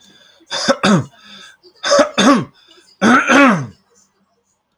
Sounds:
Throat clearing